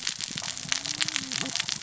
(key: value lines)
label: biophony, cascading saw
recorder: SoundTrap 600 or HydroMoth